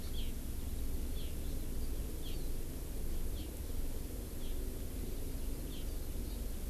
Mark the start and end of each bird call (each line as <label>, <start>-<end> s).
Hawaii Amakihi (Chlorodrepanis virens), 0.1-0.3 s
Hawaii Amakihi (Chlorodrepanis virens), 1.1-1.3 s
Hawaii Amakihi (Chlorodrepanis virens), 2.2-2.3 s
Hawaii Amakihi (Chlorodrepanis virens), 3.3-3.5 s
Hawaii Amakihi (Chlorodrepanis virens), 4.4-4.5 s
Hawaii Amakihi (Chlorodrepanis virens), 5.7-5.8 s
Hawaii Amakihi (Chlorodrepanis virens), 6.2-6.4 s